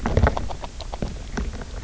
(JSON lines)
{"label": "biophony, grazing", "recorder": "SoundTrap 300"}